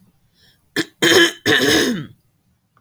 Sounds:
Throat clearing